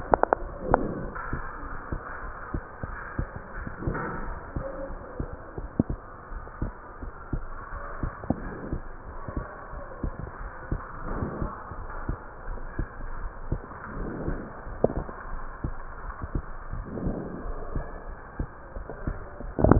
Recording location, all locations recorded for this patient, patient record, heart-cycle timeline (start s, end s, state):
pulmonary valve (PV)
pulmonary valve (PV)
#Age: Adolescent
#Sex: Female
#Height: 167.0 cm
#Weight: 89.9 kg
#Pregnancy status: False
#Murmur: Absent
#Murmur locations: nan
#Most audible location: nan
#Systolic murmur timing: nan
#Systolic murmur shape: nan
#Systolic murmur grading: nan
#Systolic murmur pitch: nan
#Systolic murmur quality: nan
#Diastolic murmur timing: nan
#Diastolic murmur shape: nan
#Diastolic murmur grading: nan
#Diastolic murmur pitch: nan
#Diastolic murmur quality: nan
#Outcome: Normal
#Campaign: 2015 screening campaign
0.00	2.00	unannotated
2.00	2.22	diastole
2.22	2.34	S1
2.34	2.52	systole
2.52	2.62	S2
2.62	2.88	diastole
2.88	3.00	S1
3.00	3.18	systole
3.18	3.30	S2
3.30	3.56	diastole
3.56	3.66	S1
3.66	3.82	systole
3.82	3.98	S2
3.98	4.26	diastole
4.26	4.38	S1
4.38	4.54	systole
4.54	4.64	S2
4.64	4.88	diastole
4.88	5.00	S1
5.00	5.18	systole
5.18	5.30	S2
5.30	5.58	diastole
5.58	5.70	S1
5.70	5.88	systole
5.88	5.98	S2
5.98	6.30	diastole
6.30	6.44	S1
6.44	6.60	systole
6.60	6.72	S2
6.72	7.02	diastole
7.02	7.12	S1
7.12	7.32	systole
7.32	7.44	S2
7.44	7.74	diastole
7.74	7.84	S1
7.84	8.02	systole
8.02	8.14	S2
8.14	8.42	diastole
8.42	8.54	S1
8.54	8.70	systole
8.70	8.82	S2
8.82	9.08	diastole
9.08	9.20	S1
9.20	9.36	systole
9.36	9.46	S2
9.46	9.74	diastole
9.74	9.84	S1
9.84	10.02	systole
10.02	10.16	S2
10.16	10.40	diastole
10.40	10.52	S1
10.52	10.68	systole
10.68	10.82	S2
10.82	11.06	diastole
11.06	11.20	S1
11.20	11.36	systole
11.36	11.50	S2
11.50	11.76	diastole
11.76	11.90	S1
11.90	12.06	systole
12.06	12.20	S2
12.20	12.48	diastole
12.48	12.62	S1
12.62	12.76	systole
12.76	12.88	S2
12.88	13.18	diastole
13.18	13.32	S1
13.32	13.48	systole
13.48	13.62	S2
13.62	13.94	diastole
13.94	14.10	S1
14.10	14.26	systole
14.26	14.40	S2
14.40	14.68	diastole
14.68	14.78	S1
14.78	14.94	systole
14.94	15.08	S2
15.08	15.30	diastole
15.30	15.44	S1
15.44	15.62	systole
15.62	15.74	S2
15.74	16.02	diastole
16.02	16.16	S1
16.16	16.32	systole
16.32	16.46	S2
16.46	16.70	diastole
16.70	16.86	S1
16.86	17.02	systole
17.02	17.18	S2
17.18	17.46	diastole
17.46	17.60	S1
17.60	17.74	systole
17.74	17.86	S2
17.86	18.08	diastole
18.08	18.20	S1
18.20	18.38	systole
18.38	18.50	S2
18.50	18.74	diastole
18.74	18.86	S1
18.86	19.06	systole
19.06	19.18	S2
19.18	19.41	diastole
19.41	19.79	unannotated